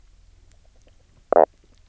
{"label": "biophony, knock croak", "recorder": "SoundTrap 300"}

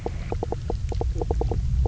{"label": "biophony, knock croak", "recorder": "SoundTrap 300"}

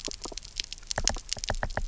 {"label": "biophony, knock", "recorder": "SoundTrap 300"}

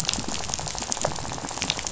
{"label": "biophony, rattle", "recorder": "SoundTrap 500"}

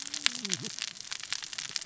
{"label": "biophony, cascading saw", "recorder": "SoundTrap 600 or HydroMoth"}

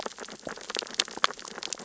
{"label": "biophony, sea urchins (Echinidae)", "recorder": "SoundTrap 600 or HydroMoth"}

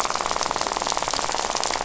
{"label": "biophony, rattle", "recorder": "SoundTrap 500"}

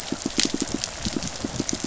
{"label": "biophony, pulse", "recorder": "SoundTrap 500"}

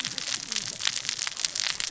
{"label": "biophony, cascading saw", "recorder": "SoundTrap 600 or HydroMoth"}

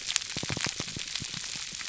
{"label": "biophony, pulse", "recorder": "SoundTrap 300"}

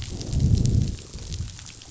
{"label": "biophony, growl", "recorder": "SoundTrap 500"}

